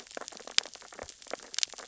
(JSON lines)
{"label": "biophony, sea urchins (Echinidae)", "recorder": "SoundTrap 600 or HydroMoth"}